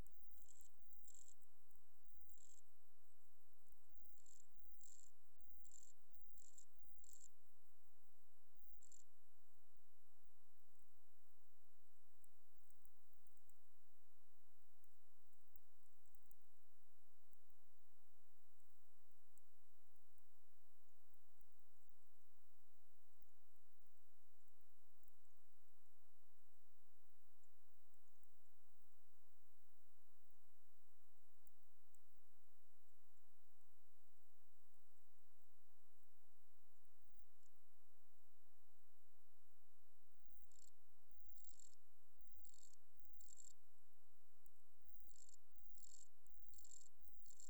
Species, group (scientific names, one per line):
Ctenodecticus ramburi
Orthoptera